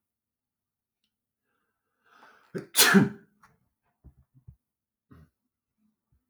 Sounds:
Sneeze